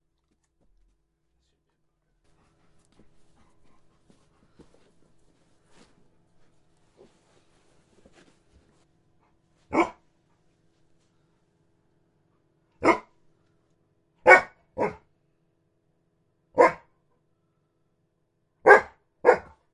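A continuous friction sound. 2.2 - 9.7
A dog barks repeatedly with short pauses between barks. 9.7 - 9.9
A dog barks repeatedly with short pauses between barks. 12.8 - 13.0
A dog barks loudly and repeatedly with short pauses. 14.2 - 14.5
A dog barks quietly and repeatedly with short pauses. 14.7 - 14.9
A dog barks repeatedly with short pauses between barks. 16.5 - 16.8
A dog barks loudly and repeatedly with short pauses. 18.6 - 18.9
A dog barks repeatedly with short pauses between barks. 19.2 - 19.4

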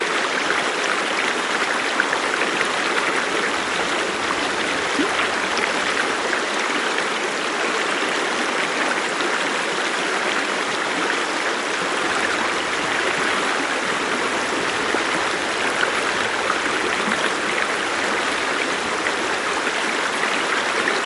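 Water running in a river, producing a steady trickle with irregular splashing sounds. 0.0 - 21.1
A single clear splash of water. 4.9 - 5.5
A single splash of water. 17.3 - 17.9

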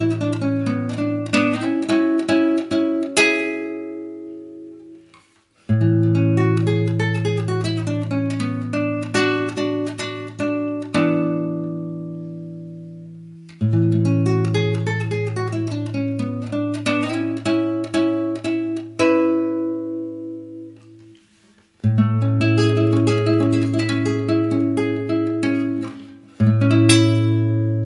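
A clean nylon-string acoustic guitar gently plays a sentimental classical arpeggio with open minor chords and small fading pauses between each note. 0.0 - 27.8

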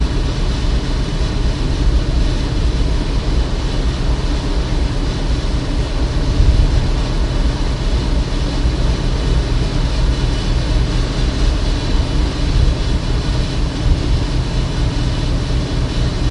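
An engine hums continuously at a high tone. 0.0 - 16.3
Deep rumbling of thunder. 0.0 - 16.3

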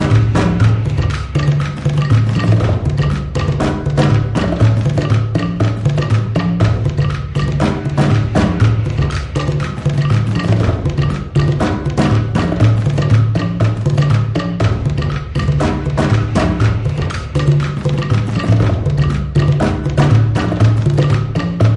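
Repetitive rhythmic drum pattern with tribal elements. 0.0 - 21.8

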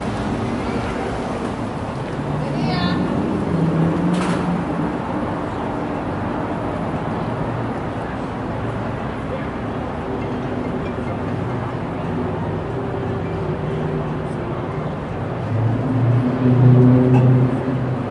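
Urban street ambience with distant traffic, buses, and faint pedestrian activity. 0.0 - 18.1

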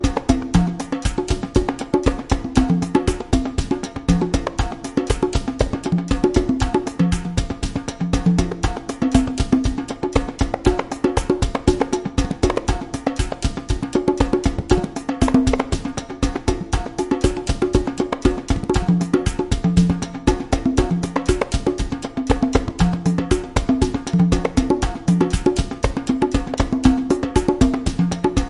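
Quiet drums accompany repeating rhythmic African tribal dance music. 0.1 - 28.5

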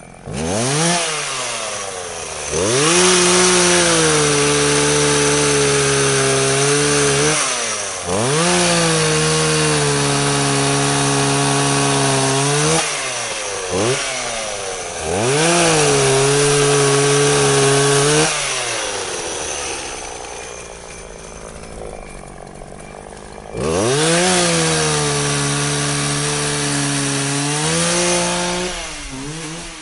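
A chainsaw starts and becomes progressively louder nearby. 0.3 - 1.5
A chainsaw runs loudly at a high RPM and constant volume nearby. 2.3 - 13.1
A chainsaw roars loudly, increasing in volume nearby. 13.5 - 14.3
A chainsaw runs loudly at a high RPM and constant volume nearby. 15.0 - 20.0
A chainsaw runs loudly at a high RPM and constant volume nearby. 23.4 - 29.8

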